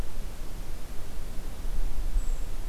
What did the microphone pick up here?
Brown Creeper